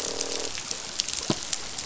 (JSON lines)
{"label": "biophony, croak", "recorder": "SoundTrap 500"}